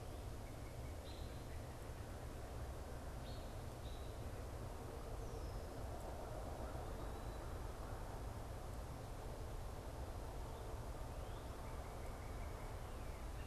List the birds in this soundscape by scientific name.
Turdus migratorius, Cardinalis cardinalis